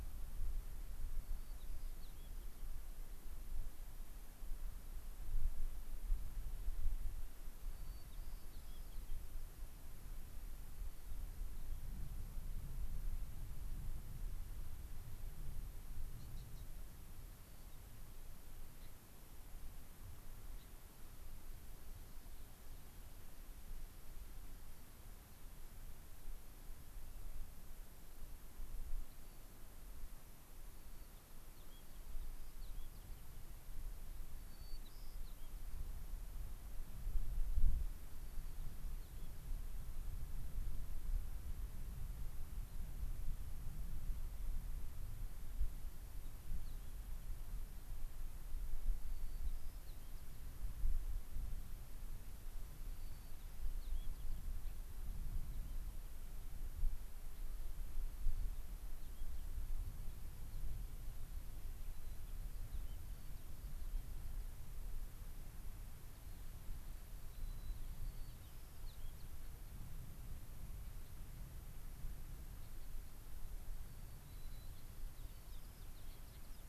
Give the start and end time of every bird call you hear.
[1.09, 2.50] White-crowned Sparrow (Zonotrichia leucophrys)
[7.59, 9.29] White-crowned Sparrow (Zonotrichia leucophrys)
[10.70, 11.89] White-crowned Sparrow (Zonotrichia leucophrys)
[17.20, 18.20] White-crowned Sparrow (Zonotrichia leucophrys)
[18.70, 18.89] Gray-crowned Rosy-Finch (Leucosticte tephrocotis)
[20.50, 20.70] Gray-crowned Rosy-Finch (Leucosticte tephrocotis)
[29.00, 29.70] Rock Wren (Salpinctes obsoletus)
[30.70, 33.20] White-crowned Sparrow (Zonotrichia leucophrys)
[34.30, 35.90] White-crowned Sparrow (Zonotrichia leucophrys)
[38.09, 39.30] White-crowned Sparrow (Zonotrichia leucophrys)
[45.70, 46.99] White-crowned Sparrow (Zonotrichia leucophrys)
[48.80, 50.49] White-crowned Sparrow (Zonotrichia leucophrys)
[52.80, 54.40] White-crowned Sparrow (Zonotrichia leucophrys)
[54.59, 54.80] Gray-crowned Rosy-Finch (Leucosticte tephrocotis)
[57.20, 57.49] Gray-crowned Rosy-Finch (Leucosticte tephrocotis)
[58.09, 59.59] White-crowned Sparrow (Zonotrichia leucophrys)
[61.80, 64.59] White-crowned Sparrow (Zonotrichia leucophrys)
[66.19, 66.69] Rock Wren (Salpinctes obsoletus)
[67.09, 69.69] White-crowned Sparrow (Zonotrichia leucophrys)
[72.59, 72.89] Gray-crowned Rosy-Finch (Leucosticte tephrocotis)
[73.69, 76.50] White-crowned Sparrow (Zonotrichia leucophrys)

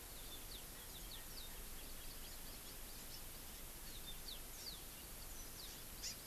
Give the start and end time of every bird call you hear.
[0.00, 1.50] Yellow-fronted Canary (Crithagra mozambica)
[1.70, 3.00] Hawaii Amakihi (Chlorodrepanis virens)
[3.80, 4.50] Yellow-fronted Canary (Crithagra mozambica)
[4.50, 4.80] Hawaii Amakihi (Chlorodrepanis virens)
[6.00, 6.20] Hawaii Amakihi (Chlorodrepanis virens)

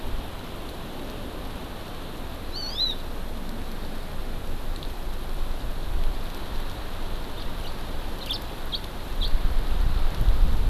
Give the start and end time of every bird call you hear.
[2.50, 3.00] Hawaii Amakihi (Chlorodrepanis virens)
[7.30, 7.70] House Finch (Haemorhous mexicanus)
[8.20, 8.40] House Finch (Haemorhous mexicanus)
[8.70, 8.80] House Finch (Haemorhous mexicanus)
[9.20, 9.30] House Finch (Haemorhous mexicanus)

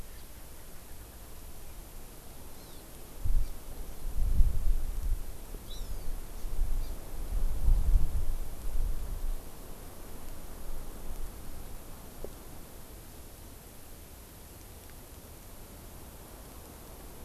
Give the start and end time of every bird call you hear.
[0.00, 1.17] Erckel's Francolin (Pternistis erckelii)
[2.47, 2.87] Hawaii Amakihi (Chlorodrepanis virens)
[5.67, 6.07] Hawaiian Hawk (Buteo solitarius)
[6.77, 6.97] Hawaii Amakihi (Chlorodrepanis virens)

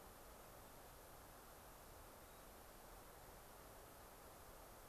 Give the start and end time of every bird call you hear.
[2.22, 2.62] Hermit Thrush (Catharus guttatus)

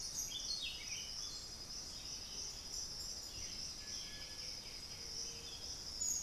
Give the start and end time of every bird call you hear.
[0.00, 1.72] Buff-throated Saltator (Saltator maximus)
[0.00, 6.22] Black-billed Thrush (Turdus ignobilis)
[3.62, 5.52] White-winged Becard (Pachyramphus polychopterus)

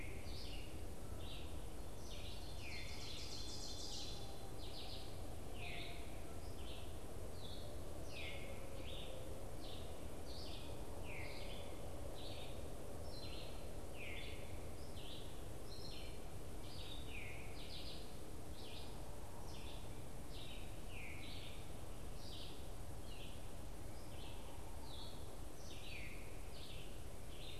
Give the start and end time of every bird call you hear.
[0.00, 14.39] Veery (Catharus fuscescens)
[0.00, 27.59] Red-eyed Vireo (Vireo olivaceus)
[2.19, 4.39] Ovenbird (Seiurus aurocapilla)
[16.99, 26.29] Veery (Catharus fuscescens)

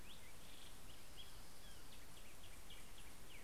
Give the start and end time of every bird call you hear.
[0.00, 3.43] Black-headed Grosbeak (Pheucticus melanocephalus)
[0.21, 2.81] Orange-crowned Warbler (Leiothlypis celata)

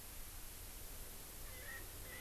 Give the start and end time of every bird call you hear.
[1.50, 2.20] Erckel's Francolin (Pternistis erckelii)

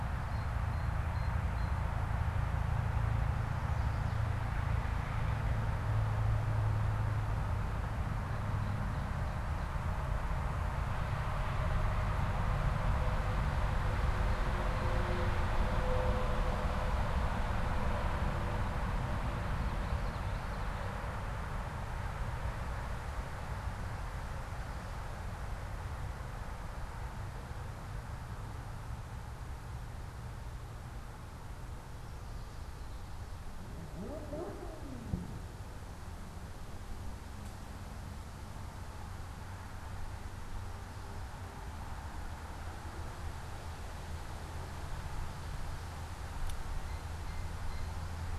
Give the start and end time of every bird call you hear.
[0.00, 1.90] Blue Jay (Cyanocitta cristata)
[3.60, 4.30] Chestnut-sided Warbler (Setophaga pensylvanica)
[7.90, 9.80] Ovenbird (Seiurus aurocapilla)
[14.10, 15.50] Blue Jay (Cyanocitta cristata)
[19.20, 21.00] Common Yellowthroat (Geothlypis trichas)
[46.70, 48.10] Blue Jay (Cyanocitta cristata)

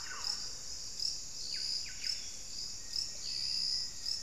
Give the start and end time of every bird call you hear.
[0.00, 0.57] Thrush-like Wren (Campylorhynchus turdinus)
[0.00, 4.22] Buff-breasted Wren (Cantorchilus leucotis)
[2.47, 4.22] Black-faced Antthrush (Formicarius analis)

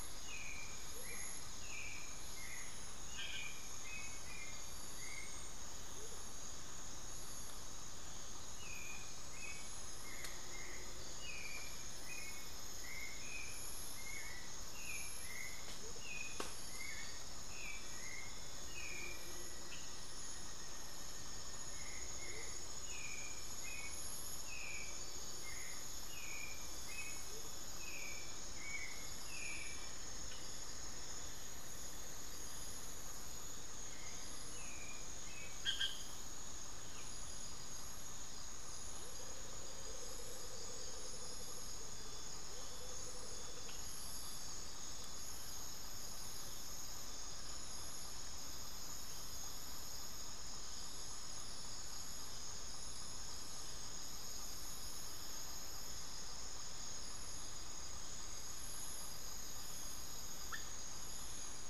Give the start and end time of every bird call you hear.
[0.00, 6.32] Amazonian Motmot (Momotus momota)
[0.00, 30.02] Hauxwell's Thrush (Turdus hauxwelli)
[15.62, 16.02] Amazonian Motmot (Momotus momota)
[18.52, 22.12] Black-faced Antthrush (Formicarius analis)
[22.22, 27.72] Amazonian Motmot (Momotus momota)
[28.62, 33.12] Cinnamon-throated Woodcreeper (Dendrexetastes rufigula)
[33.72, 35.72] Hauxwell's Thrush (Turdus hauxwelli)
[38.92, 43.82] Amazonian Motmot (Momotus momota)

